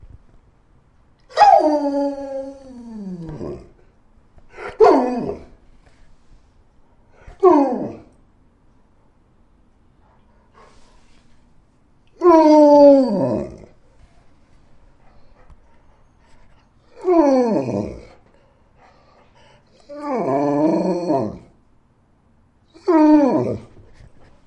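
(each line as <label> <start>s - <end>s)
A dog growls and the sound fades. 1.4s - 3.6s
A dog growls. 4.6s - 5.4s
A dog growls. 7.3s - 8.0s
A dog is breathing. 10.0s - 11.2s
A dog growls. 12.2s - 13.6s
A dog is breathing. 15.0s - 15.8s
A dog growls. 17.0s - 18.1s
A dog is breathing. 18.6s - 19.6s
A dog growls. 19.9s - 21.5s
A dog growls. 22.8s - 23.7s
A dog is breathing. 23.7s - 24.5s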